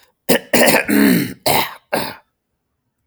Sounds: Throat clearing